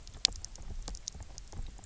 {"label": "biophony, knock croak", "recorder": "SoundTrap 300"}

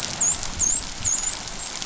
{"label": "biophony, dolphin", "recorder": "SoundTrap 500"}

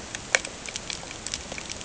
{"label": "ambient", "recorder": "HydroMoth"}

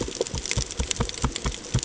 {"label": "ambient", "recorder": "HydroMoth"}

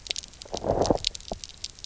{"label": "biophony, low growl", "recorder": "SoundTrap 300"}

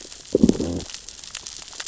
{"label": "biophony, growl", "recorder": "SoundTrap 600 or HydroMoth"}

